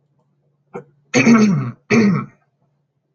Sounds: Throat clearing